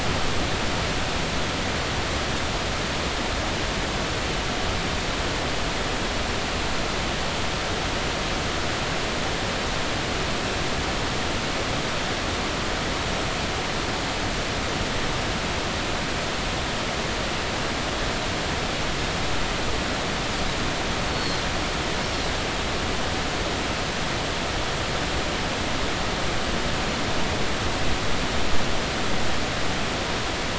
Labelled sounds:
21.1	21.4	Pacific white-sided dolphin, 4.1 to 4.4 kHz

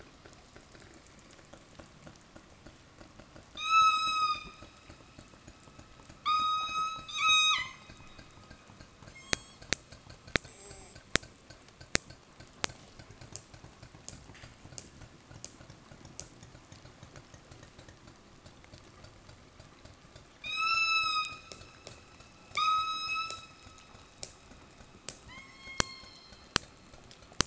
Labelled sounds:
3.4	4.8	killer whale, southern resident, 0.65 to 8.0 kHz
6.2	8.2	killer whale, southern resident, 0.58 to 8.0 kHz
9.1	9.6	killer whale, southern resident, 1.1 to 8.0 kHz
20.3	21.9	killer whale, southern resident, 0.51 to 8.0 kHz
22.4	24.0	killer whale, southern resident, 0.72 to 8.0 kHz
25.1	26.7	killer whale, southern resident, 0.87 to 8.0 kHz

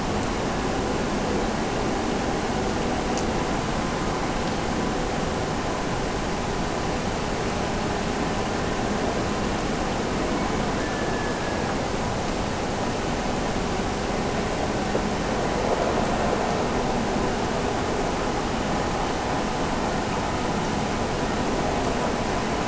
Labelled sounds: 10.3	11.8	killer whale, Bigg's (transient), Gulf of Alaska transient, 1.6 to 2.3 kHz

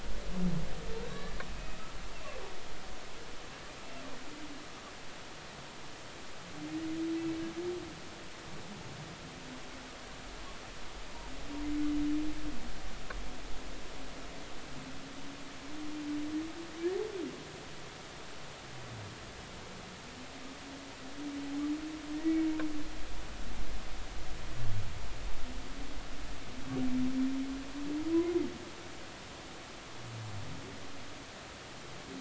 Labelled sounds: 1.5	1.8	humpback whale, 2.5 to 2.6 kHz
22.1	22.4	humpback whale, 1.8 to 2.0 kHz

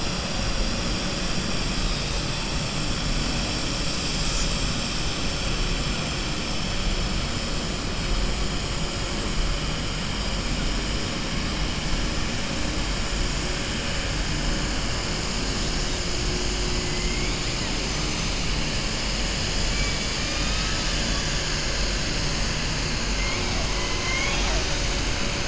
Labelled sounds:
19.7	21.0	killer whale, southern resident, 1.3 to 4.1 kHz
24.1	24.6	killer whale, southern resident, 0.59 to 3.8 kHz

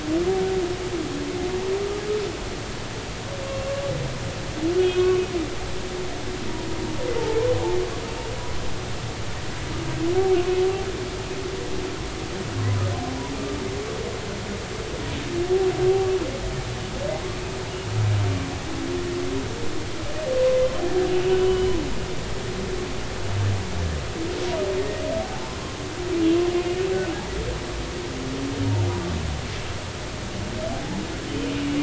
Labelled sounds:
3.5	3.7	humpback whale, 2.7 to 2.8 kHz
4.8	5.1	humpback whale, 3.2 to 3.3 kHz
7.2	8.3	humpback whale, 0.83 to 2.9 kHz
12.6	12.8	humpback whale, 0.96 to 1.1 kHz
21.2	21.8	humpback whale, 2.7 to 3.1 kHz
24.8	25.5	humpback whale, 0.80 to 2.0 kHz

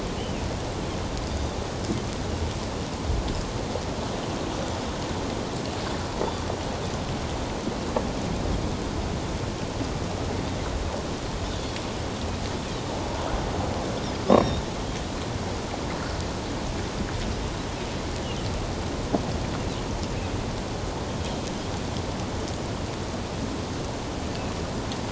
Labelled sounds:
1.3	1.6	Pacific white-sided dolphin, 3.4 to 4.9 kHz
11.4	11.8	Pacific white-sided dolphin, 3.3 to 3.6 kHz
14.3	14.6	Pacific white-sided dolphin, 3.4 to 3.8 kHz

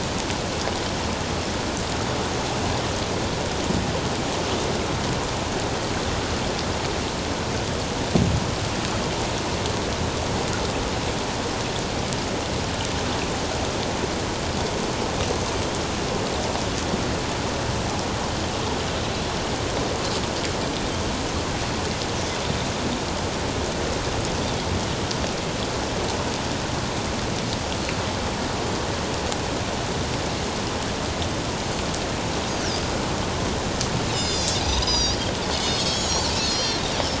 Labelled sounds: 34.1	35.2	Pacific white-sided dolphin, 3.4 to 7.8 kHz
35.6	36.8	Pacific white-sided dolphin, 3.0 to 7.8 kHz

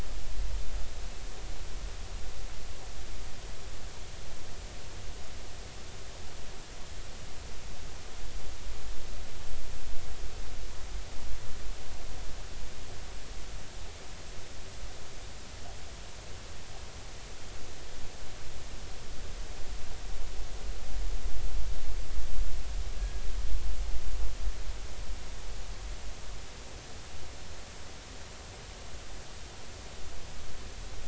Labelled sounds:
23.0	23.2	killer whale, northern resident, G clan, call N24ii, 1.6 to 1.7 kHz

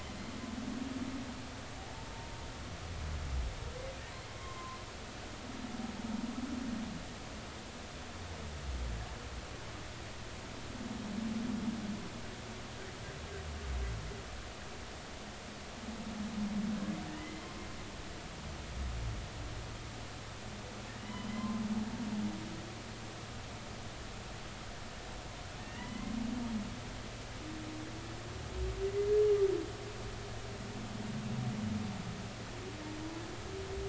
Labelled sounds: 0.1	0.3	humpback whale, 4.1 to 4.2 kHz
4.3	4.8	humpback whale, 0.99 to 1.1 kHz
17.2	17.4	humpback whale, 1.9 to 2.1 kHz
21.0	21.6	humpback whale, 0.99 to 3.1 kHz
25.6	26.1	humpback whale, 1.8 to 2.2 kHz

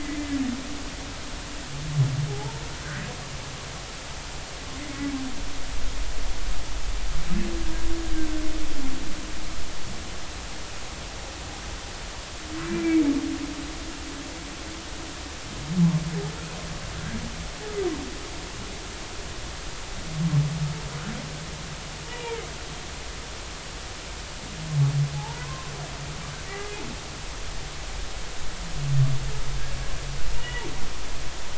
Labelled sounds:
0.0	0.4	humpback whale, 1.9 to 2.1 kHz
2.3	2.6	humpback whale, 0.80 to 0.96 kHz
8.2	8.4	humpback whale, 1.5 to 1.6 kHz
12.7	13.1	humpback whale, 2.2 to 2.4 kHz
22.0	22.4	humpback whale, 0.86 to 2.5 kHz
25.1	25.7	humpback whale, 0.80 to 1.1 kHz
26.5	26.8	humpback whale, 1.9 to 2.1 kHz
30.3	30.7	humpback whale, 1.8 to 3.0 kHz

